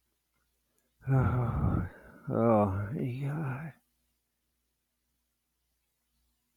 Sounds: Sigh